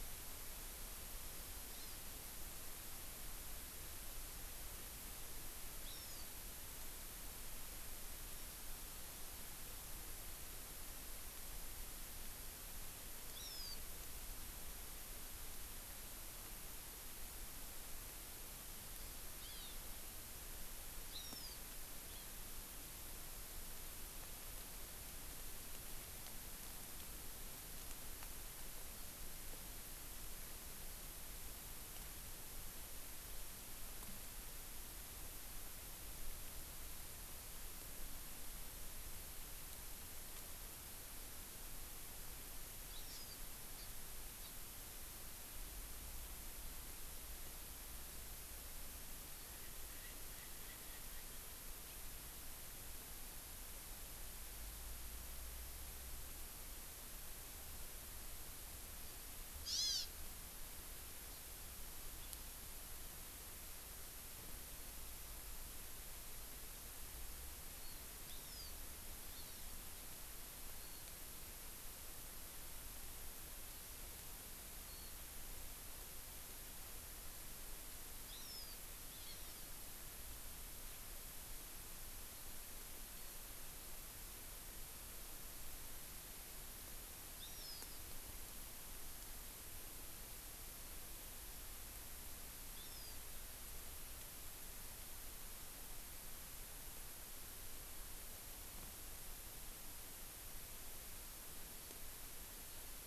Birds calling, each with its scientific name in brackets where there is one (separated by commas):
Erckel's Francolin (Pternistis erckelii), Hawaii Amakihi (Chlorodrepanis virens)